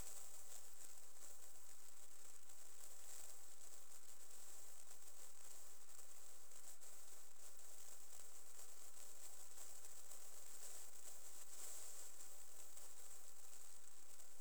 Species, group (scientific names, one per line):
Platycleis albopunctata
Orthoptera